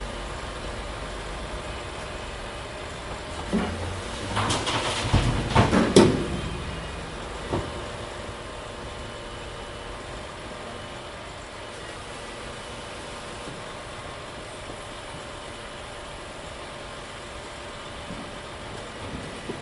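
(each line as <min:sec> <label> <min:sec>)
0:00.0 A consistent low-throttle engine noise from a pneumatic drill on a demolition site. 0:03.4
0:03.4 The sound of a concrete wall collapsing during demolition. 0:07.0
0:07.0 A consistent low-throttle engine noise from a pneumatic drill on a demolition site. 0:19.6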